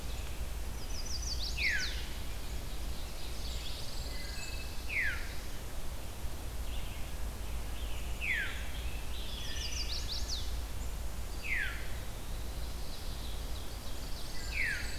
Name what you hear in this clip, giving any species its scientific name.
Vireo olivaceus, Setophaga pensylvanica, Catharus fuscescens, Setophaga fusca, Setophaga pinus, Hylocichla mustelina, Piranga olivacea, Seiurus aurocapilla